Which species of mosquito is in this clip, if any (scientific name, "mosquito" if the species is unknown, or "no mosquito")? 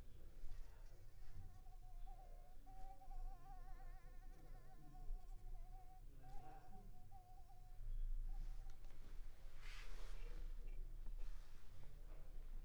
Anopheles coustani